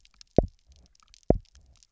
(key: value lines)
label: biophony, double pulse
recorder: SoundTrap 300